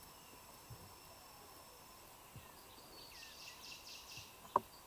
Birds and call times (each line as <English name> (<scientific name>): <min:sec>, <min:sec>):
African Emerald Cuckoo (Chrysococcyx cupreus): 0:03.0